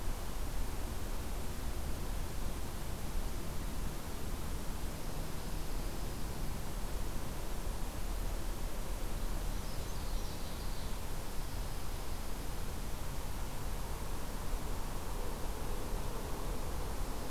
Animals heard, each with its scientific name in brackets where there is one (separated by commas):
Brown Creeper (Certhia americana), Ovenbird (Seiurus aurocapilla), Dark-eyed Junco (Junco hyemalis)